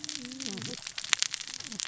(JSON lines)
{"label": "biophony, cascading saw", "recorder": "SoundTrap 600 or HydroMoth"}